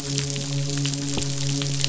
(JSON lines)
{"label": "biophony, midshipman", "recorder": "SoundTrap 500"}